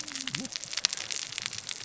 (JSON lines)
{"label": "biophony, cascading saw", "recorder": "SoundTrap 600 or HydroMoth"}